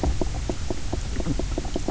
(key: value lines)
label: biophony, knock croak
recorder: SoundTrap 300